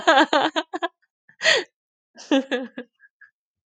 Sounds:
Laughter